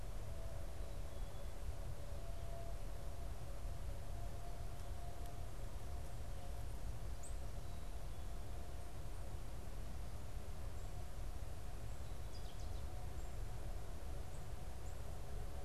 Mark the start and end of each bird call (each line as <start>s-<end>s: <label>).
7.1s-7.4s: Black-capped Chickadee (Poecile atricapillus)
12.2s-13.0s: Ovenbird (Seiurus aurocapilla)